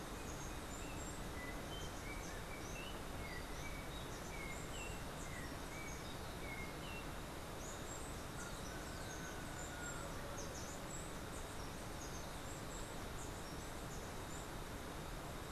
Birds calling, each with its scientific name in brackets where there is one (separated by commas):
Steely-vented Hummingbird (Saucerottia saucerottei), Yellow-backed Oriole (Icterus chrysater)